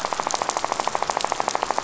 {"label": "biophony, rattle", "recorder": "SoundTrap 500"}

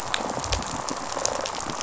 {"label": "biophony, rattle response", "recorder": "SoundTrap 500"}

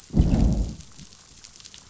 {"label": "biophony, growl", "recorder": "SoundTrap 500"}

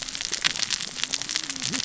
{"label": "biophony, cascading saw", "recorder": "SoundTrap 600 or HydroMoth"}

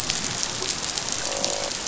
{"label": "biophony, croak", "recorder": "SoundTrap 500"}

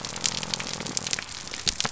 {"label": "biophony", "recorder": "SoundTrap 300"}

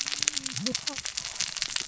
{"label": "biophony, cascading saw", "recorder": "SoundTrap 600 or HydroMoth"}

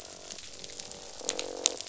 {"label": "biophony, croak", "recorder": "SoundTrap 500"}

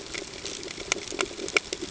{"label": "ambient", "recorder": "HydroMoth"}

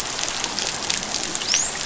{"label": "biophony, dolphin", "recorder": "SoundTrap 500"}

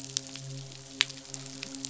{"label": "biophony, midshipman", "recorder": "SoundTrap 500"}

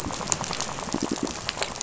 {"label": "biophony, rattle", "recorder": "SoundTrap 500"}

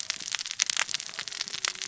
{"label": "biophony, cascading saw", "recorder": "SoundTrap 600 or HydroMoth"}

